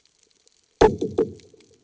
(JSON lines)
{"label": "anthrophony, bomb", "recorder": "HydroMoth"}